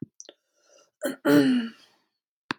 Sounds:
Throat clearing